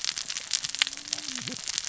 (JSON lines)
{"label": "biophony, cascading saw", "recorder": "SoundTrap 600 or HydroMoth"}